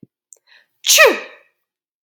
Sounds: Sneeze